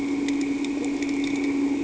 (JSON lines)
{"label": "anthrophony, boat engine", "recorder": "HydroMoth"}